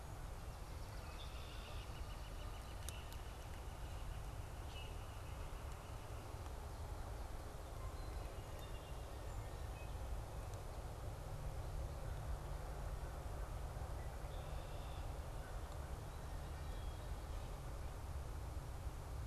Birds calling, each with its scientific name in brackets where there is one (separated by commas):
Song Sparrow (Melospiza melodia), Red-winged Blackbird (Agelaius phoeniceus), Common Grackle (Quiscalus quiscula), Northern Flicker (Colaptes auratus)